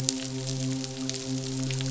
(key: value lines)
label: biophony, midshipman
recorder: SoundTrap 500